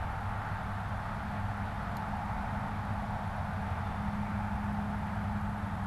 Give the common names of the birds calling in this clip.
Blue Jay